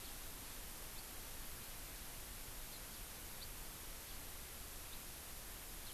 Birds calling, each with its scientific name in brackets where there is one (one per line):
House Finch (Haemorhous mexicanus)